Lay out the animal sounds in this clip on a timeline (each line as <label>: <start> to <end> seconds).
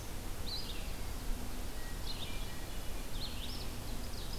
Red-eyed Vireo (Vireo olivaceus): 0.0 to 4.4 seconds
Hermit Thrush (Catharus guttatus): 1.6 to 3.1 seconds
Ovenbird (Seiurus aurocapilla): 3.6 to 4.4 seconds